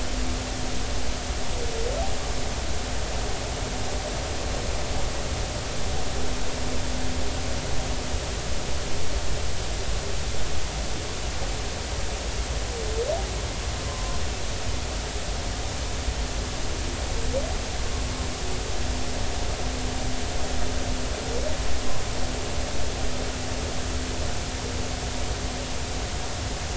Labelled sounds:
13.9	14.2	humpback whale, 0.99 to 1.1 kHz

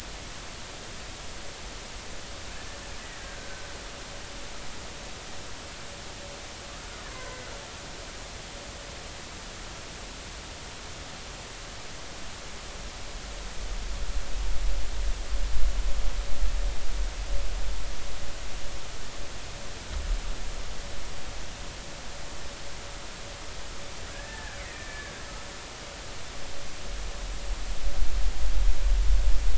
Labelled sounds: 3.2	3.7	killer whale, Bigg's (transient), 1.5 to 1.7 kHz
7.1	7.4	killer whale, Bigg's (transient), 0.93 to 1.1 kHz
24.1	25.1	killer whale, Bigg's (transient), 1.5 to 2.4 kHz

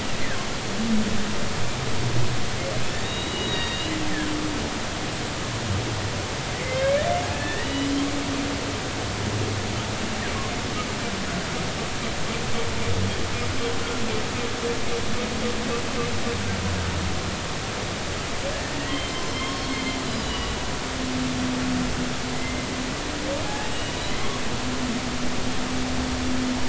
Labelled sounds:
3.0	4.0	humpback whale, 1.8 to 6.8 kHz
6.6	8.0	humpback whale, 1.7 to 4.0 kHz
18.9	19.8	humpback whale, 3.1 to 5.4 kHz
20.2	20.7	humpback whale, 2.8 to 3.0 kHz
22.3	22.6	humpback whale, 2.0 to 2.1 kHz
23.5	24.0	humpback whale, 0.80 to 2.9 kHz

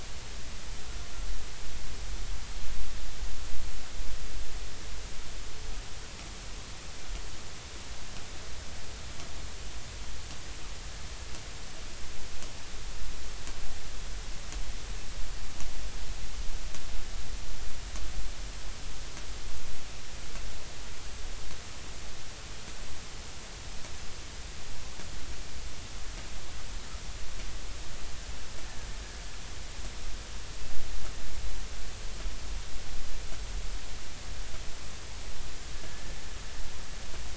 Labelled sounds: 35.8	36.2	killer whale, Bigg's (transient), 1.7 to 1.8 kHz

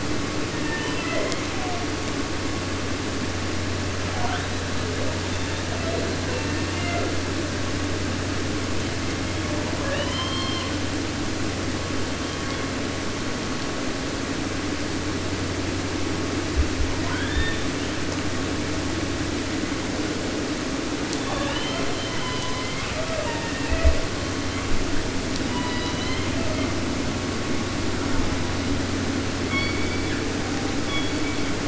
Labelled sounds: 0.5	1.9	killer whale, southern resident, J pod, call S01, 0.50 to 7.1 kHz
4.1	5.0	killer whale, 0.25 to 4.3 kHz
5.2	7.2	killer whale, southern resident, J pod, call S01, 0.18 to 4.3 kHz
8.8	9.7	killer whale, 0.37 to 5.8 kHz
9.8	10.8	killer whale, southern resident, J pod, call S44, 0.50 to 6.9 kHz
11.7	12.8	killer whale, 0.55 to 4.6 kHz
16.9	17.8	killer whale, 0.36 to 4.8 kHz
21.2	25.0	killer whale, southern resident, J pod, call S01, 0.14 to 6.1 kHz
25.4	26.8	killer whale, southern resident, J pod, call S01, 0.50 to 6.8 kHz
29.4	31.6	killer whale, southern resident, 0.50 to 6.5 kHz

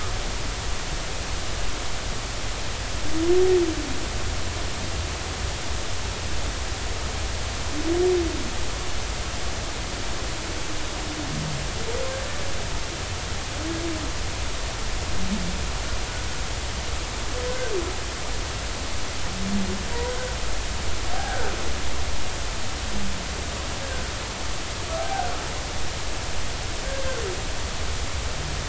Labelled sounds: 19.9	20.2	humpback whale, 0.93 to 1.1 kHz
21.1	21.5	humpback whale, 0.80 to 1.7 kHz
25.0	25.3	humpback whale, 0.80 to 0.83 kHz

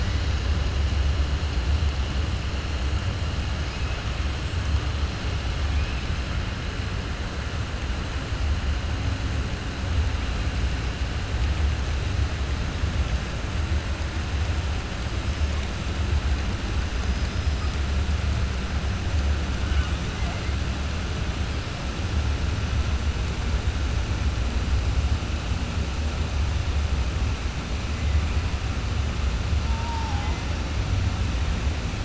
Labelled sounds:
16.9	17.7	killer whale, 4.5 to 5.6 kHz

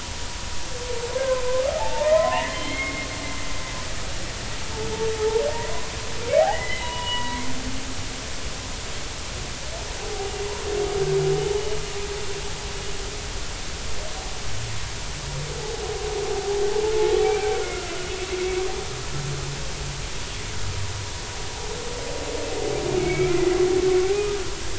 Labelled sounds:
1.2	1.4	humpback whale, 1.5 to 1.7 kHz
1.7	3.1	humpback whale, 0.80 to 3.3 kHz
5.5	7.4	humpback whale, 0.80 to 3.0 kHz
10.0	10.3	humpback whale, 0.80 to 0.83 kHz
17.2	17.5	humpback whale, 2.2 to 2.4 kHz
23.0	23.4	humpback whale, 1.3 to 2.5 kHz
24.1	24.4	humpback whale, 1.2 to 1.3 kHz

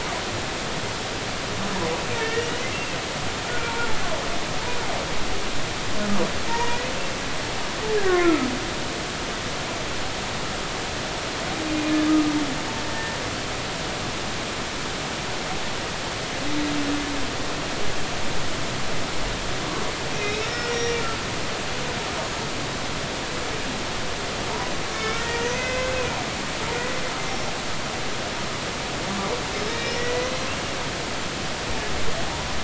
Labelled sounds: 2.1	3.0	humpback whale, 1.7 to 3.0 kHz
3.5	3.7	humpback whale, 1.3 to 1.5 kHz
6.5	6.8	humpback whale, 0.86 to 1.9 kHz
8.0	8.5	humpback whale, 0.99 to 2.0 kHz
12.9	13.2	humpback whale, 1.8 to 1.9 kHz
20.2	21.0	humpback whale, 1.9 to 5.8 kHz
24.9	26.2	humpback whale, 1.3 to 2.6 kHz
29.7	30.3	humpback whale, 1.9 to 5.3 kHz

